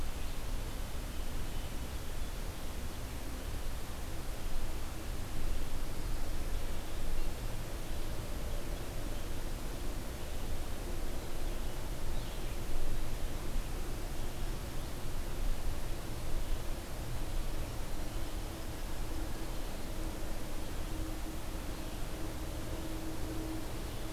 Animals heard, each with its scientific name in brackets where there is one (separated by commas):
Red-eyed Vireo (Vireo olivaceus)